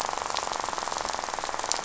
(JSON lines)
{"label": "biophony, rattle", "recorder": "SoundTrap 500"}